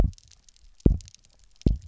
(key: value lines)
label: biophony, double pulse
recorder: SoundTrap 300